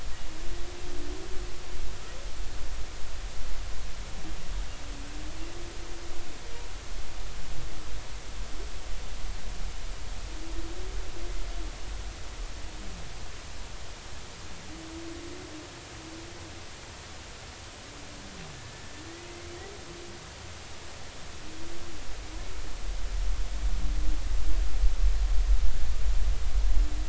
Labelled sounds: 18.5	18.8	humpback whale, 1.7 to 1.8 kHz
19.3	19.6	humpback whale, 2.0 to 2.3 kHz

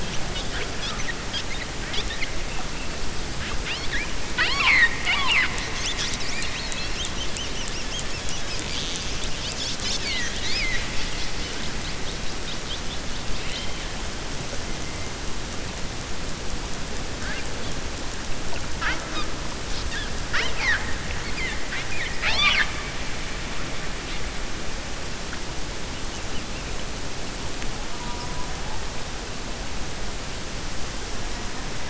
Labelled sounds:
21.6	22.7	killer whale, 0.72 to 5.8 kHz

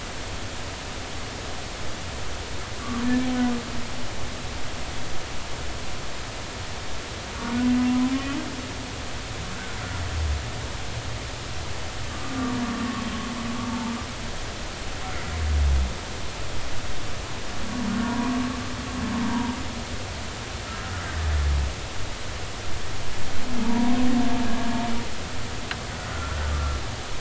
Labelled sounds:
8.1	8.4	humpback whale, 2.9 to 3.1 kHz
12.1	12.3	humpback whale, 1.1 to 1.3 kHz
13.7	13.9	humpback whale, 0.83 to 0.96 kHz
18.0	18.4	humpback whale, 0.90 to 1.2 kHz
19.3	19.5	humpback whale, 0.90 to 1.0 kHz
20.6	20.9	humpback whale, 1.2 to 1.4 kHz
23.6	24.1	humpback whale, 0.86 to 1.1 kHz
26.1	26.4	humpback whale, 1.3 to 1.5 kHz

